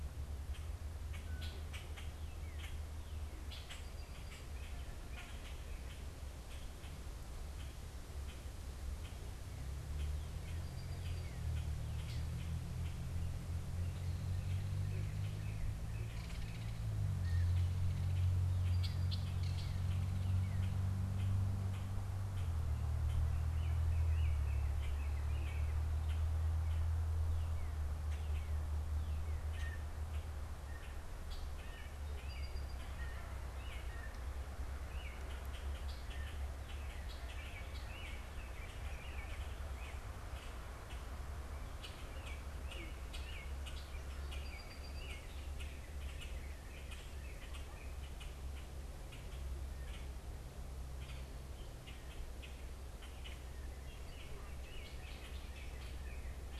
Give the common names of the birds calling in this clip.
Common Grackle, Song Sparrow, Northern Cardinal, Belted Kingfisher, American Robin, Blue Jay